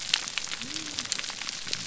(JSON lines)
{"label": "biophony", "recorder": "SoundTrap 300"}